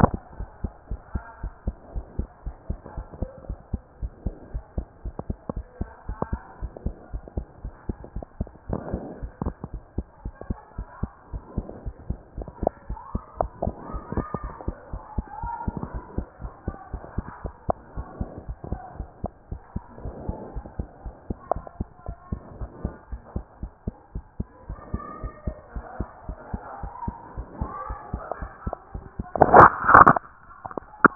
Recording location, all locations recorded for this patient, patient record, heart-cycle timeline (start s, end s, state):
pulmonary valve (PV)
aortic valve (AV)+pulmonary valve (PV)+tricuspid valve (TV)+mitral valve (MV)
#Age: Child
#Sex: Female
#Height: 111.0 cm
#Weight: 20.3 kg
#Pregnancy status: False
#Murmur: Absent
#Murmur locations: nan
#Most audible location: nan
#Systolic murmur timing: nan
#Systolic murmur shape: nan
#Systolic murmur grading: nan
#Systolic murmur pitch: nan
#Systolic murmur quality: nan
#Diastolic murmur timing: nan
#Diastolic murmur shape: nan
#Diastolic murmur grading: nan
#Diastolic murmur pitch: nan
#Diastolic murmur quality: nan
#Outcome: Abnormal
#Campaign: 2014 screening campaign
0.00	0.38	unannotated
0.38	0.48	S1
0.48	0.62	systole
0.62	0.72	S2
0.72	0.90	diastole
0.90	1.00	S1
1.00	1.14	systole
1.14	1.22	S2
1.22	1.42	diastole
1.42	1.52	S1
1.52	1.66	systole
1.66	1.76	S2
1.76	1.94	diastole
1.94	2.06	S1
2.06	2.18	systole
2.18	2.28	S2
2.28	2.46	diastole
2.46	2.56	S1
2.56	2.68	systole
2.68	2.78	S2
2.78	2.96	diastole
2.96	3.06	S1
3.06	3.20	systole
3.20	3.30	S2
3.30	3.48	diastole
3.48	3.58	S1
3.58	3.72	systole
3.72	3.82	S2
3.82	4.00	diastole
4.00	4.12	S1
4.12	4.24	systole
4.24	4.34	S2
4.34	4.52	diastole
4.52	4.64	S1
4.64	4.76	systole
4.76	4.86	S2
4.86	5.04	diastole
5.04	5.14	S1
5.14	5.28	systole
5.28	5.38	S2
5.38	5.54	diastole
5.54	5.66	S1
5.66	5.80	systole
5.80	5.88	S2
5.88	6.08	diastole
6.08	6.18	S1
6.18	6.30	systole
6.30	6.40	S2
6.40	6.60	diastole
6.60	6.72	S1
6.72	6.84	systole
6.84	6.94	S2
6.94	7.12	diastole
7.12	7.24	S1
7.24	7.36	systole
7.36	7.46	S2
7.46	7.64	diastole
7.64	7.74	S1
7.74	7.88	systole
7.88	7.96	S2
7.96	8.14	diastole
8.14	8.26	S1
8.26	8.38	systole
8.38	8.48	S2
8.48	8.68	diastole
8.68	8.82	S1
8.82	8.92	systole
8.92	9.02	S2
9.02	9.20	diastole
9.20	9.32	S1
9.32	9.44	systole
9.44	9.54	S2
9.54	9.72	diastole
9.72	9.82	S1
9.82	9.96	systole
9.96	10.06	S2
10.06	10.24	diastole
10.24	10.34	S1
10.34	10.48	systole
10.48	10.58	S2
10.58	10.78	diastole
10.78	10.88	S1
10.88	11.02	systole
11.02	11.10	S2
11.10	11.32	diastole
11.32	11.42	S1
11.42	11.56	systole
11.56	11.66	S2
11.66	11.84	diastole
11.84	11.94	S1
11.94	12.08	systole
12.08	12.18	S2
12.18	12.36	diastole
12.36	12.48	S1
12.48	12.62	systole
12.62	12.72	S2
12.72	12.88	diastole
12.88	12.98	S1
12.98	13.12	systole
13.12	13.22	S2
13.22	13.40	diastole
13.40	13.50	S1
13.50	13.64	systole
13.64	13.74	S2
13.74	13.92	diastole
13.92	14.02	S1
14.02	14.16	systole
14.16	14.26	S2
14.26	14.42	diastole
14.42	14.54	S1
14.54	14.66	systole
14.66	14.76	S2
14.76	14.92	diastole
14.92	15.02	S1
15.02	15.16	systole
15.16	15.26	S2
15.26	15.42	diastole
15.42	15.52	S1
15.52	15.66	systole
15.66	15.74	S2
15.74	15.94	diastole
15.94	16.04	S1
16.04	16.16	systole
16.16	16.26	S2
16.26	16.42	diastole
16.42	16.52	S1
16.52	16.66	systole
16.66	16.76	S2
16.76	16.92	diastole
16.92	17.02	S1
17.02	17.16	systole
17.16	17.26	S2
17.26	17.44	diastole
17.44	17.54	S1
17.54	17.68	systole
17.68	17.76	S2
17.76	17.96	diastole
17.96	18.06	S1
18.06	18.20	systole
18.20	18.28	S2
18.28	18.46	diastole
18.46	18.58	S1
18.58	18.70	systole
18.70	18.80	S2
18.80	18.98	diastole
18.98	19.08	S1
19.08	19.22	systole
19.22	19.32	S2
19.32	19.50	diastole
19.50	19.60	S1
19.60	19.74	systole
19.74	19.84	S2
19.84	20.02	diastole
20.02	20.14	S1
20.14	20.26	systole
20.26	20.36	S2
20.36	20.54	diastole
20.54	20.66	S1
20.66	20.78	systole
20.78	20.88	S2
20.88	21.04	diastole
21.04	21.14	S1
21.14	21.28	systole
21.28	21.38	S2
21.38	21.54	diastole
21.54	21.64	S1
21.64	21.78	systole
21.78	21.88	S2
21.88	22.06	diastole
22.06	22.16	S1
22.16	22.30	systole
22.30	22.40	S2
22.40	22.60	diastole
22.60	22.70	S1
22.70	22.84	systole
22.84	22.94	S2
22.94	23.12	diastole
23.12	23.22	S1
23.22	23.34	systole
23.34	23.44	S2
23.44	23.62	diastole
23.62	23.72	S1
23.72	23.86	systole
23.86	23.94	S2
23.94	24.14	diastole
24.14	24.24	S1
24.24	24.38	systole
24.38	24.48	S2
24.48	24.68	diastole
24.68	24.78	S1
24.78	24.92	systole
24.92	25.02	S2
25.02	25.22	diastole
25.22	25.32	S1
25.32	25.46	systole
25.46	25.56	S2
25.56	25.74	diastole
25.74	25.86	S1
25.86	25.98	systole
25.98	26.08	S2
26.08	26.28	diastole
26.28	26.38	S1
26.38	26.52	systole
26.52	26.62	S2
26.62	26.82	diastole
26.82	26.92	S1
26.92	27.06	systole
27.06	27.14	S2
27.14	27.36	diastole
27.36	27.48	S1
27.48	27.60	systole
27.60	27.70	S2
27.70	27.88	diastole
27.88	27.98	S1
27.98	28.12	systole
28.12	28.22	S2
28.22	28.40	diastole
28.40	28.50	S1
28.50	28.66	systole
28.66	28.74	S2
28.74	28.93	diastole
28.93	31.15	unannotated